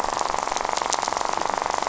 {"label": "biophony, rattle", "recorder": "SoundTrap 500"}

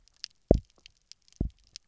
{"label": "biophony, double pulse", "recorder": "SoundTrap 300"}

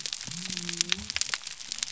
{"label": "biophony", "recorder": "SoundTrap 300"}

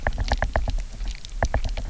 {"label": "biophony, knock", "recorder": "SoundTrap 300"}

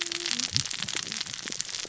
{"label": "biophony, cascading saw", "recorder": "SoundTrap 600 or HydroMoth"}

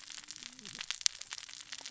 {"label": "biophony, cascading saw", "recorder": "SoundTrap 600 or HydroMoth"}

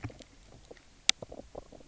{"label": "biophony, knock croak", "recorder": "SoundTrap 300"}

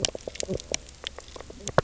{"label": "biophony, knock croak", "recorder": "SoundTrap 300"}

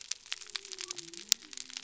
{"label": "biophony", "recorder": "SoundTrap 300"}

